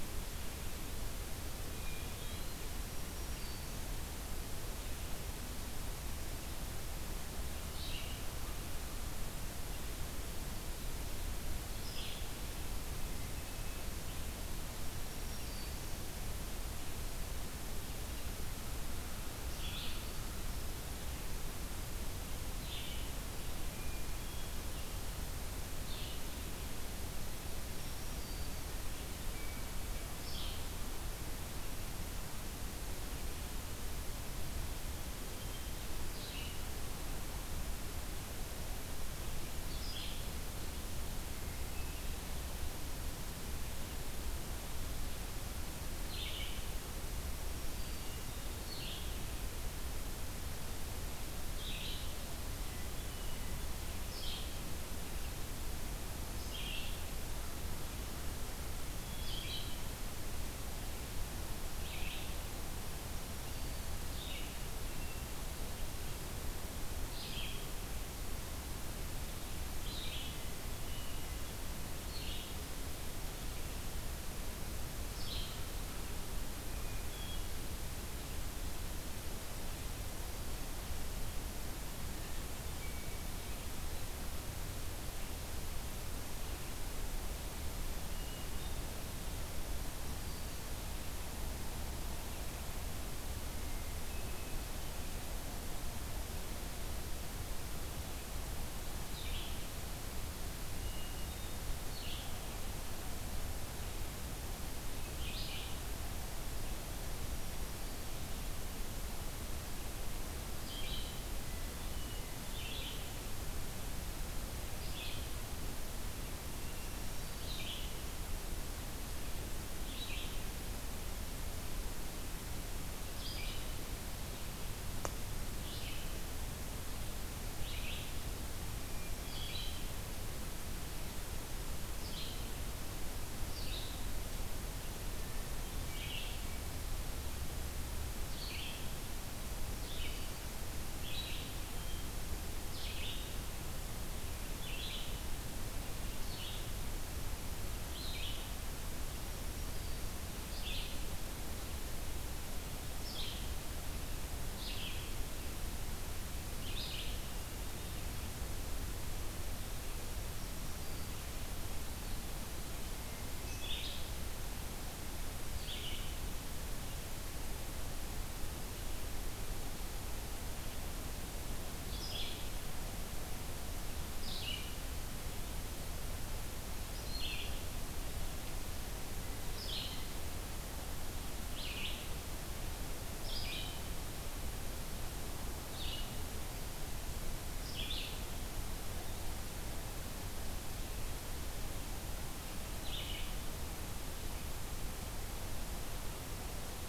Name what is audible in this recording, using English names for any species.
Hermit Thrush, Eastern Wood-Pewee, Black-throated Green Warbler, Red-eyed Vireo